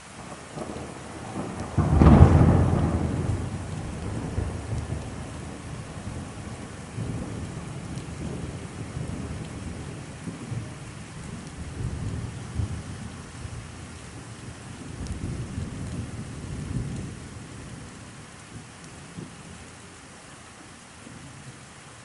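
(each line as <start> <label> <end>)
0.0 Rain falls steadily in a rhythmic pattern. 22.0
1.6 A loud thunderclap slowly fades. 3.7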